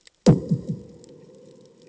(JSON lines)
{"label": "anthrophony, bomb", "recorder": "HydroMoth"}